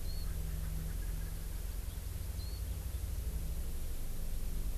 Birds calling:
Warbling White-eye (Zosterops japonicus)

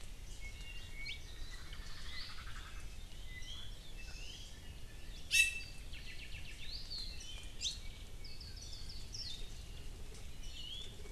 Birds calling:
Apapane (Himatione sanguinea), Hawaii Creeper (Loxops mana), Omao (Myadestes obscurus), Iiwi (Drepanis coccinea), Hawaii Amakihi (Chlorodrepanis virens), Warbling White-eye (Zosterops japonicus)

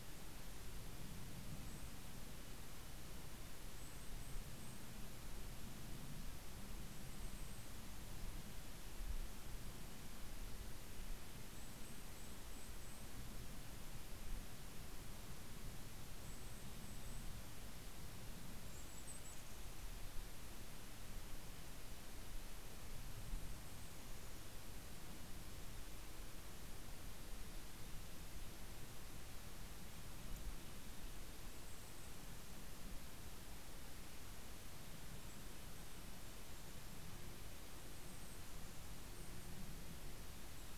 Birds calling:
Golden-crowned Kinglet (Regulus satrapa), Western Tanager (Piranga ludoviciana)

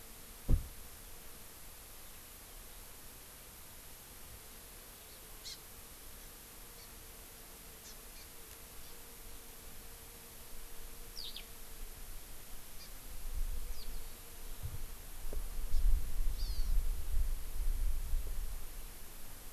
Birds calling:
Hawaii Amakihi (Chlorodrepanis virens), Eurasian Skylark (Alauda arvensis)

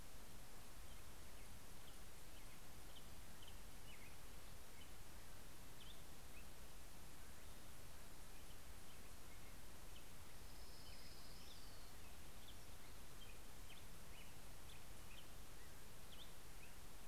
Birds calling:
Orange-crowned Warbler (Leiothlypis celata), Black-headed Grosbeak (Pheucticus melanocephalus)

